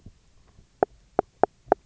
{"label": "biophony, knock croak", "recorder": "SoundTrap 300"}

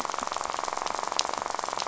{"label": "biophony, rattle", "recorder": "SoundTrap 500"}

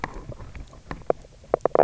{"label": "biophony, knock croak", "recorder": "SoundTrap 300"}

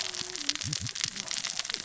{"label": "biophony, cascading saw", "recorder": "SoundTrap 600 or HydroMoth"}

